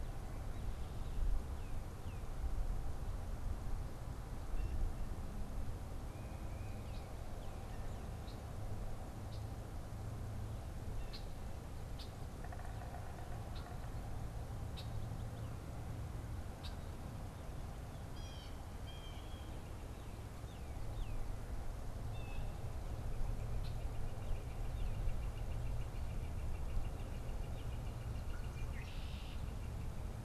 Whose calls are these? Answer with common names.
Tufted Titmouse, Blue Jay, Red-winged Blackbird, unidentified bird